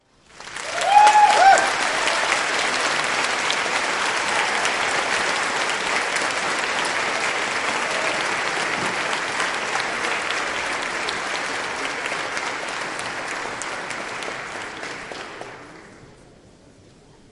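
0.4s A crowd claps enthusiastically in a hall. 15.7s
0.8s A person cheers loudly in a hall. 1.7s
15.9s Muffled background noise in a hall. 17.3s

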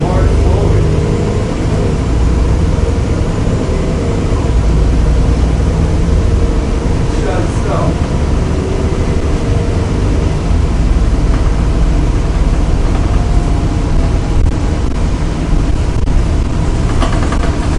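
0.0s Strong, vibrant, low-frequency white noise. 17.8s
0.0s A man is mumbling. 1.6s
7.1s A man is mumbling. 8.4s
9.3s A vehicle accelerates. 12.3s
13.4s A car passes by. 15.5s
17.2s A man is playing drums with his hands on a surface. 17.7s

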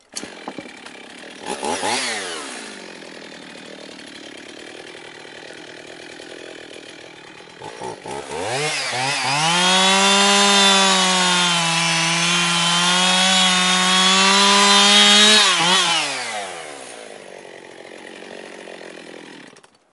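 0.0s A chainsaw starts outside. 1.4s
1.4s The sound of a chainsaw revving up repeatedly outside. 2.7s
2.7s A chainsaw is idling outside. 7.6s
7.6s A chainsaw cutting, increasing in loudness. 16.6s
16.5s A chainsaw is idling outside. 19.5s
19.5s A chainsaw is being turned off. 19.9s

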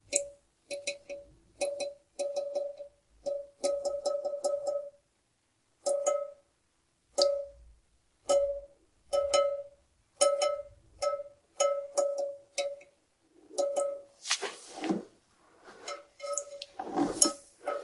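0.1s Liquid dripping and splashing in a sink with occasional gurgling sounds. 17.8s

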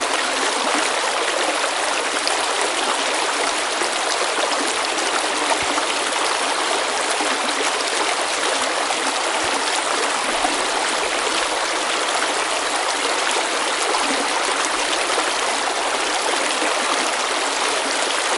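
0.0s Water flowing continuously with occasional bubbling noises. 18.4s

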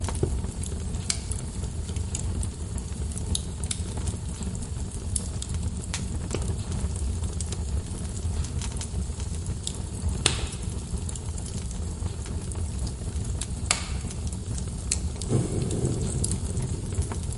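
0.0s Fire crackling continuously. 17.3s
1.1s Heavy fire crackling. 1.1s
10.2s Heavy fire crackling. 10.3s
13.7s Heavy fire crackling. 13.7s
15.3s The fire grows stronger. 17.3s

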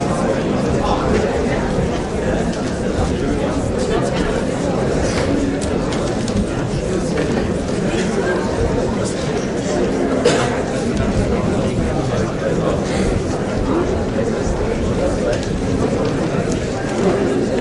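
0.0s Continuous mumbled chatter from a crowd. 17.6s

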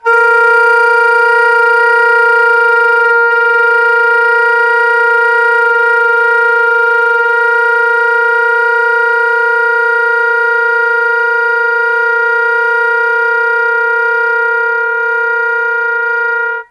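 0.0s A flute resonates with a consistent tone as it is played. 16.7s

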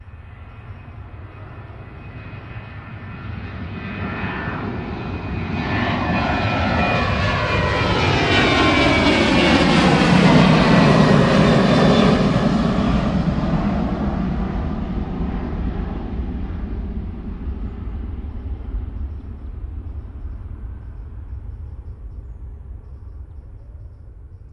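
0.0s An airplane flies by with a whooshing sound that fades in and out. 24.5s

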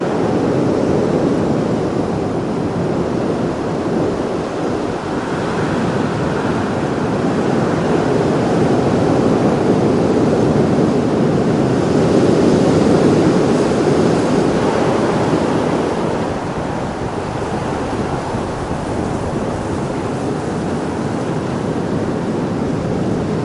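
0.0s Strong wind blowing through a forest. 23.4s
11.9s Tree leaves rattling in the wind. 23.4s

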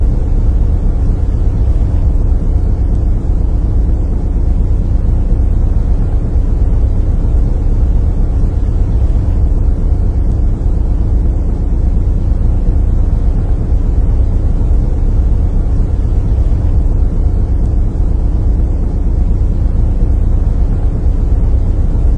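0.0s A continuous, faint scratching sound in the background. 22.2s
0.0s A deep, reverberating hum from the engine of a large cargo ship. 22.2s

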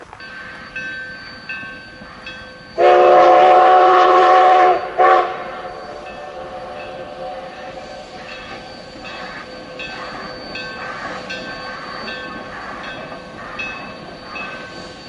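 0.0s A railway crossing signal bell sounds repeatedly. 2.6s
2.7s A train whistle sounds. 5.7s
8.3s A railway crossing signal bell sounds repeatedly. 15.1s

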